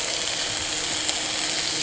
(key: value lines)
label: anthrophony, boat engine
recorder: HydroMoth